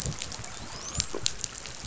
{"label": "biophony, dolphin", "recorder": "SoundTrap 500"}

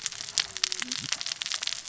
{"label": "biophony, cascading saw", "recorder": "SoundTrap 600 or HydroMoth"}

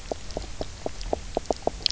{"label": "biophony, knock croak", "recorder": "SoundTrap 300"}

